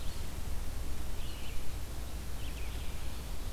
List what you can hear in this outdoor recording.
Red-eyed Vireo